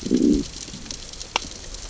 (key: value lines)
label: biophony, growl
recorder: SoundTrap 600 or HydroMoth